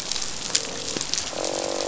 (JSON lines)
{"label": "biophony, croak", "recorder": "SoundTrap 500"}
{"label": "biophony", "recorder": "SoundTrap 500"}